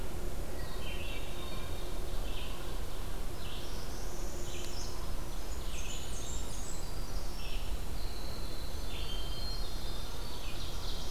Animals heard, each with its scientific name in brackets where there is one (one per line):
Hermit Thrush (Catharus guttatus)
Ovenbird (Seiurus aurocapilla)
Red-eyed Vireo (Vireo olivaceus)
Winter Wren (Troglodytes hiemalis)
Blackburnian Warbler (Setophaga fusca)
Northern Parula (Setophaga americana)